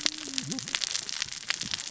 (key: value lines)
label: biophony, cascading saw
recorder: SoundTrap 600 or HydroMoth